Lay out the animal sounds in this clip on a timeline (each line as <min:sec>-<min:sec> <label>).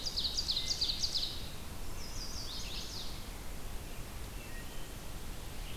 0:00.0-0:01.5 Ovenbird (Seiurus aurocapilla)
0:00.0-0:05.8 Red-eyed Vireo (Vireo olivaceus)
0:01.8-0:03.4 Chestnut-sided Warbler (Setophaga pensylvanica)
0:04.3-0:04.9 Wood Thrush (Hylocichla mustelina)